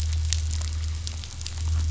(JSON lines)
{"label": "anthrophony, boat engine", "recorder": "SoundTrap 500"}